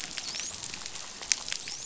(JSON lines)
{"label": "biophony, dolphin", "recorder": "SoundTrap 500"}